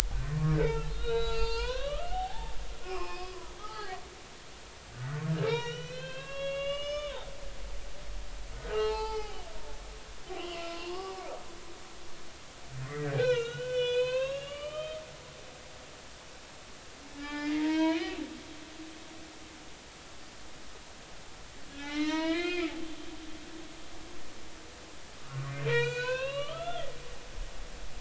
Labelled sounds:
0.3	2.6	humpback whale, 0.80 to 7.7 kHz
2.8	4.0	humpback whale, 0.80 to 5.4 kHz
4.9	7.2	humpback whale, 0.99 to 6.6 kHz
8.7	9.4	humpback whale, 0.80 to 4.4 kHz
10.4	11.2	humpback whale, 0.96 to 3.2 kHz
12.8	15.4	humpback whale, 0.96 to 7.6 kHz
17.1	18.2	humpback whale, 0.83 to 4.3 kHz
21.7	22.7	humpback whale, 0.80 to 5.3 kHz
23.0	23.7	humpback whale, 3.9 to 4.3 kHz
25.6	26.9	humpback whale, 0.90 to 7.3 kHz

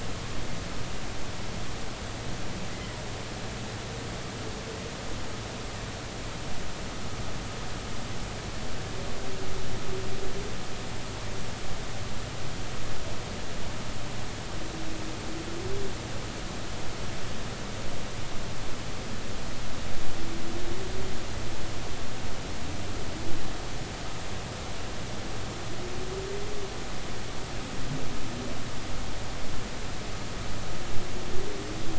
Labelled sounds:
2.7	2.9	humpback whale, 1.9 to 2.1 kHz

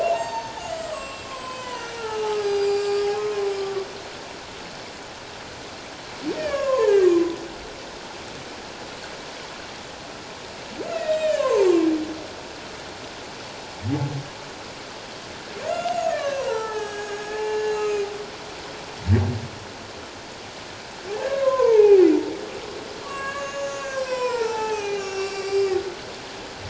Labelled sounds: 0.0	3.1	humpback whale, 0.78 to 7.8 kHz
3.5	3.9	humpback whale, 1.1 to 5.2 kHz
6.4	7.2	humpback whale, 0.78 to 2.9 kHz
10.9	11.7	humpback whale, 0.81 to 7.6 kHz
15.6	18.1	humpback whale, 0.81 to 7.6 kHz
21.2	22.1	humpback whale, 0.78 to 2.7 kHz
23.0	25.7	humpback whale, 0.78 to 7.9 kHz

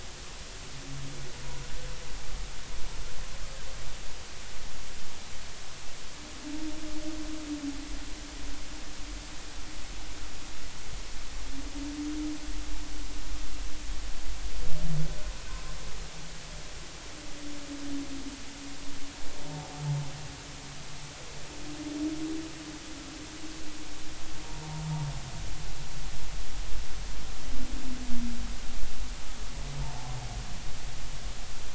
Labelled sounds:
1.4	1.7	humpback whale, 0.93 to 1.1 kHz
29.8	30.1	humpback whale, 0.80 to 0.96 kHz

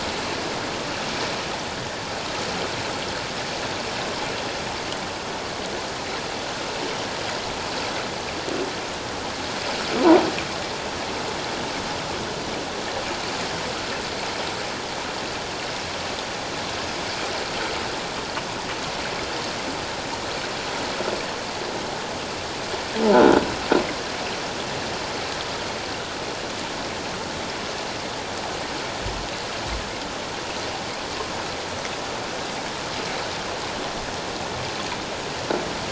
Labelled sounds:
23.1	23.4	croaking sound likely from a nearby submerged object, 1.3 to 1.5 kHz

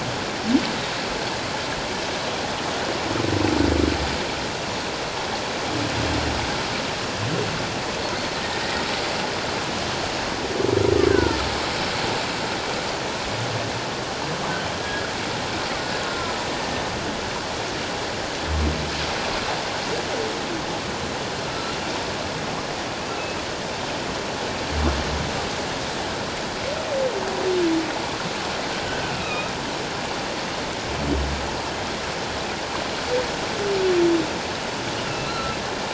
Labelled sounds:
11.1	11.4	killer whale, Bigg's (transient), 1.3 to 1.7 kHz
14.8	15.1	humpback whale, 1.6 to 1.7 kHz
16.1	16.4	killer whale, Bigg's (transient), 1.2 to 1.4 kHz
21.5	21.8	humpback whale, 1.3 to 1.4 kHz
29.1	29.5	humpback whale, 1.2 to 2.7 kHz
35.1	35.6	humpback whale, 1.3 to 4.2 kHz

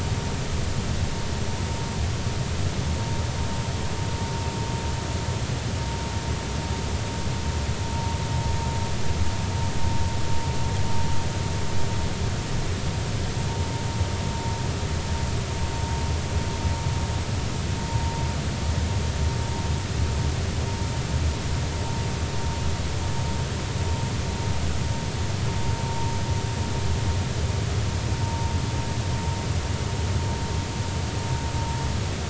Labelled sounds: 28.2	28.5	vessel noise, 0.90 to 0.96 kHz

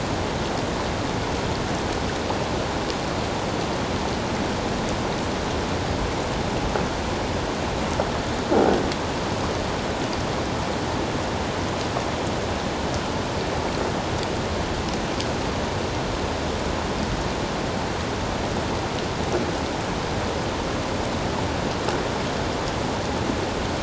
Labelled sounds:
8.6	8.8	croaking sound likely from a nearby submerged object, 1.3 to 1.6 kHz

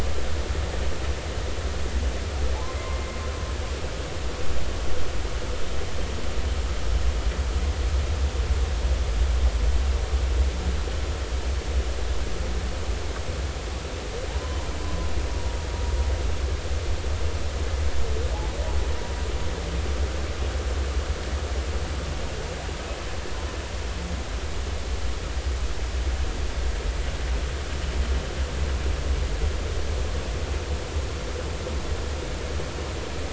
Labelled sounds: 2.8	3.0	humpback whale, 2.0 to 2.1 kHz
14.4	15.1	humpback whale, 0.90 to 1.1 kHz

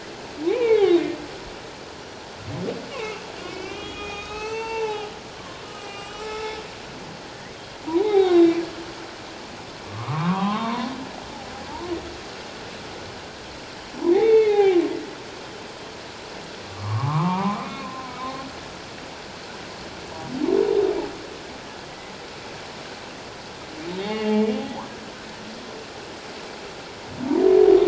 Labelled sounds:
0.5	0.9	humpback whale, 2.0 to 2.6 kHz
2.0	2.3	humpback whale, 5.7 to 5.8 kHz
2.9	6.6	humpback whale, 0.78 to 7.8 kHz
7.8	8.6	humpback whale, 0.78 to 3.9 kHz
9.8	10.9	humpback whale, 0.78 to 3.9 kHz
14.1	14.8	humpback whale, 0.78 to 4.0 kHz
16.6	18.2	humpback whale, 0.78 to 2.5 kHz
21.9	22.1	humpback whale, 1.9 to 2.1 kHz
24.1	24.4	humpback whale, 2.7 to 2.9 kHz

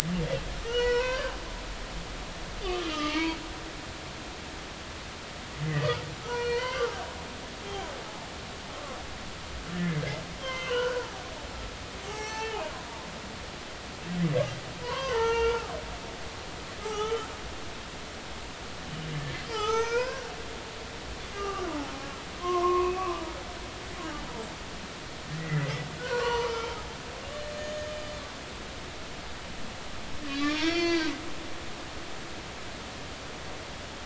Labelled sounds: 0.7	1.3	humpback whale, 0.90 to 5.9 kHz
2.6	3.4	humpback whale, 0.86 to 3.2 kHz
5.6	7.0	humpback whale, 0.90 to 3.3 kHz
9.7	12.7	humpback whale, 0.80 to 7.6 kHz
14.8	15.7	humpback whale, 0.83 to 3.3 kHz
16.8	17.3	humpback whale, 0.80 to 6.2 kHz
19.4	20.3	humpback whale, 0.80 to 6.6 kHz
21.3	21.7	humpback whale, 1.1 to 2.9 kHz
22.4	23.4	humpback whale, 0.93 to 1.3 kHz
25.4	26.7	humpback whale, 0.86 to 4.7 kHz
27.5	27.9	humpback whale, 6.5 to 6.7 kHz
30.3	31.1	humpback whale, 0.93 to 6.2 kHz

